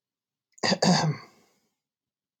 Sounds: Throat clearing